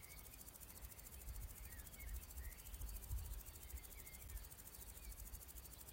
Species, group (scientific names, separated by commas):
Omocestus viridulus, Orthoptera